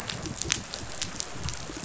{"label": "biophony, pulse", "recorder": "SoundTrap 500"}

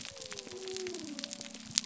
{"label": "biophony", "recorder": "SoundTrap 300"}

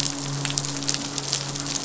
{"label": "biophony, midshipman", "recorder": "SoundTrap 500"}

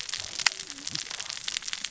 {"label": "biophony, cascading saw", "recorder": "SoundTrap 600 or HydroMoth"}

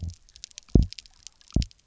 {"label": "biophony, double pulse", "recorder": "SoundTrap 300"}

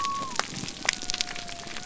{"label": "biophony", "recorder": "SoundTrap 300"}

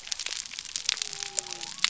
{"label": "biophony", "recorder": "SoundTrap 300"}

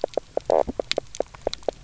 {"label": "biophony, knock croak", "recorder": "SoundTrap 300"}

